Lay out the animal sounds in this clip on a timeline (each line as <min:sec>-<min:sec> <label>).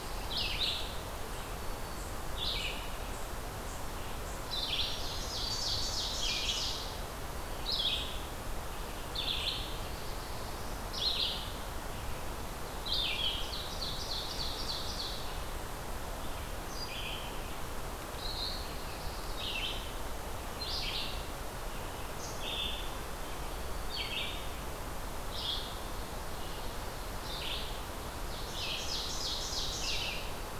0:00.0-0:24.5 Red-eyed Vireo (Vireo olivaceus)
0:04.3-0:06.2 Black-throated Green Warbler (Setophaga virens)
0:04.8-0:06.8 Ovenbird (Seiurus aurocapilla)
0:09.4-0:10.8 Black-throated Blue Warbler (Setophaga caerulescens)
0:13.2-0:15.3 Ovenbird (Seiurus aurocapilla)
0:18.2-0:19.8 Black-throated Blue Warbler (Setophaga caerulescens)
0:25.2-0:30.6 Red-eyed Vireo (Vireo olivaceus)
0:28.2-0:30.1 Ovenbird (Seiurus aurocapilla)